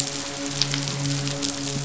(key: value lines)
label: biophony, midshipman
recorder: SoundTrap 500